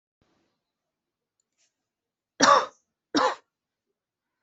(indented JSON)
{
  "expert_labels": [
    {
      "quality": "good",
      "cough_type": "dry",
      "dyspnea": false,
      "wheezing": false,
      "stridor": false,
      "choking": false,
      "congestion": false,
      "nothing": true,
      "diagnosis": "healthy cough",
      "severity": "pseudocough/healthy cough"
    }
  ],
  "age": 33,
  "gender": "female",
  "respiratory_condition": true,
  "fever_muscle_pain": false,
  "status": "symptomatic"
}